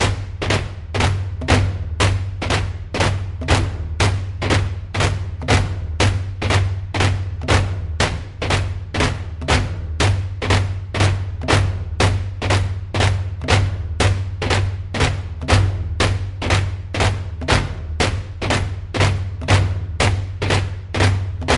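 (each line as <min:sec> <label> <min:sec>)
0:00.0 Drums play a rhythmic pattern. 0:21.6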